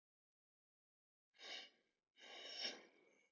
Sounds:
Sniff